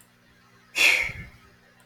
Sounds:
Sigh